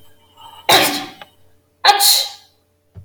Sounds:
Sneeze